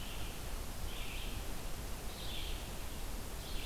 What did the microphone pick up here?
Red-eyed Vireo